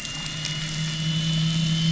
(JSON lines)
{"label": "anthrophony, boat engine", "recorder": "SoundTrap 500"}